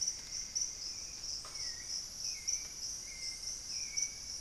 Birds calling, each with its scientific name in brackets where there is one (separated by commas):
Plumbeous Antbird (Myrmelastes hyperythrus), Solitary Black Cacique (Cacicus solitarius), Hauxwell's Thrush (Turdus hauxwelli)